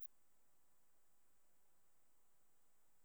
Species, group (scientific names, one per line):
Phaneroptera falcata
Orthoptera